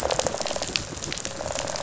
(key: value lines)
label: biophony, rattle response
recorder: SoundTrap 500